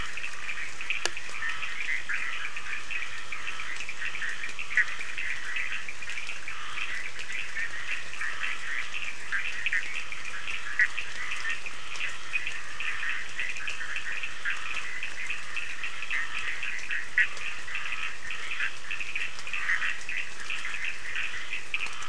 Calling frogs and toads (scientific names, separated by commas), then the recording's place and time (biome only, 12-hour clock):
Boana bischoffi, Scinax perereca, Sphaenorhynchus surdus
Atlantic Forest, 1:15am